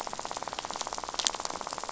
{"label": "biophony, rattle", "recorder": "SoundTrap 500"}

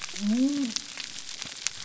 {"label": "biophony", "recorder": "SoundTrap 300"}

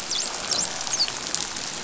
{"label": "biophony, dolphin", "recorder": "SoundTrap 500"}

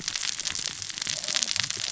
{"label": "biophony, cascading saw", "recorder": "SoundTrap 600 or HydroMoth"}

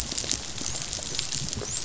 {"label": "biophony, dolphin", "recorder": "SoundTrap 500"}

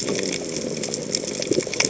{"label": "biophony", "recorder": "HydroMoth"}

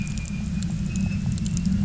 {"label": "anthrophony, boat engine", "recorder": "SoundTrap 300"}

